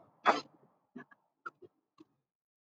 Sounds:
Sniff